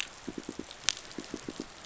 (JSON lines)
{"label": "biophony, pulse", "recorder": "SoundTrap 500"}